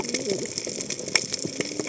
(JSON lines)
{"label": "biophony, cascading saw", "recorder": "HydroMoth"}